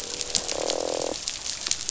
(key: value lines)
label: biophony, croak
recorder: SoundTrap 500